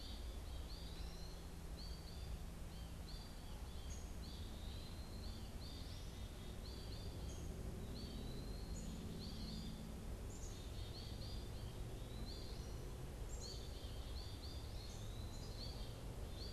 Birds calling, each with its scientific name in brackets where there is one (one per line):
Eastern Wood-Pewee (Contopus virens)
Black-capped Chickadee (Poecile atricapillus)
American Goldfinch (Spinus tristis)